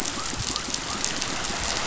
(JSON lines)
{"label": "biophony", "recorder": "SoundTrap 500"}